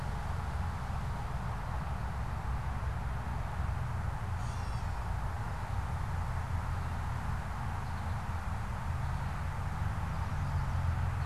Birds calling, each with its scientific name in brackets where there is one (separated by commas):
American Goldfinch (Spinus tristis), Gray Catbird (Dumetella carolinensis)